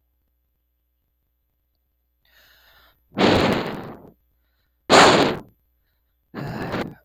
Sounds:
Sigh